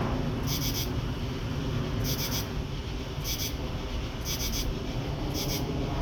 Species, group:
Pterophylla camellifolia
Orthoptera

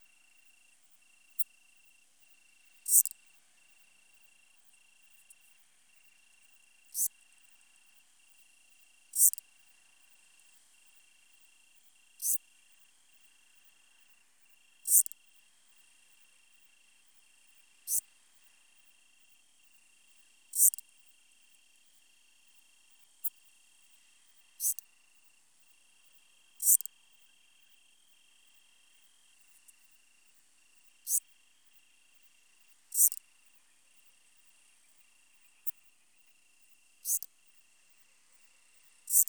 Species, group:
Psorodonotus macedonicus
Orthoptera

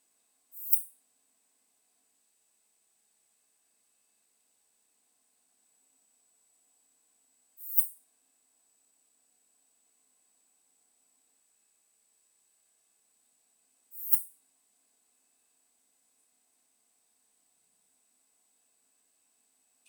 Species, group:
Poecilimon pseudornatus
Orthoptera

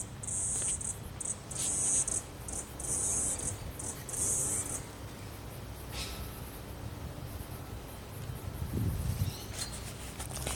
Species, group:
Atrapsalta corticina
Cicadidae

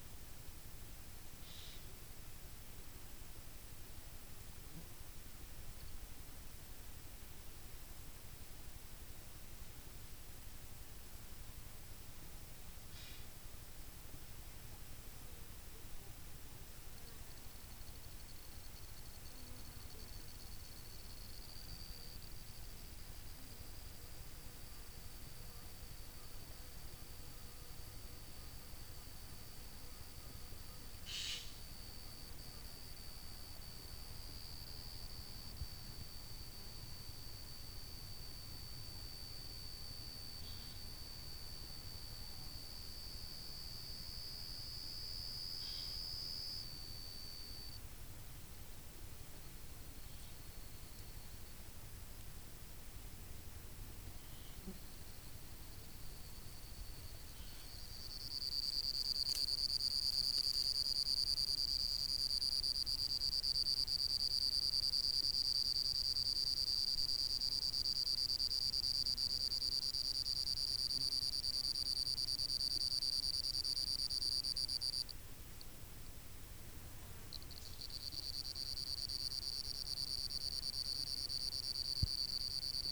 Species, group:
Pteronemobius lineolatus
Orthoptera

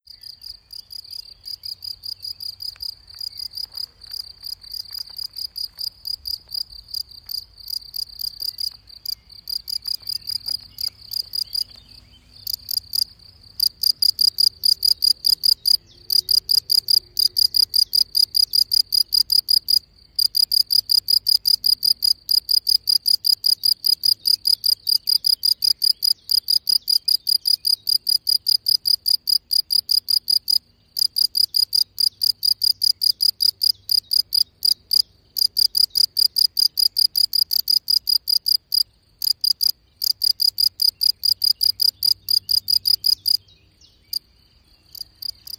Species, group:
Gryllus campestris
Orthoptera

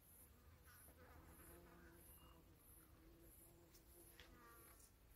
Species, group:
Haemopsalta rubea
Cicadidae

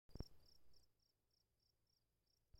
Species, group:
Gryllus campestris
Orthoptera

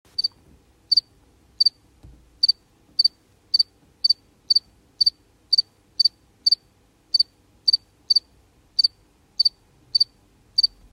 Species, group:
Acheta domesticus
Orthoptera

